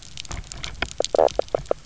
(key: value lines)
label: biophony, knock croak
recorder: SoundTrap 300